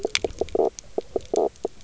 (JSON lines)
{"label": "biophony, knock croak", "recorder": "SoundTrap 300"}